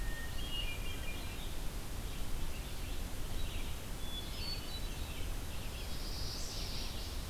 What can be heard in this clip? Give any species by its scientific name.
Catharus guttatus, Vireo olivaceus, Setophaga pensylvanica